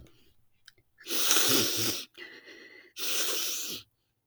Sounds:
Sniff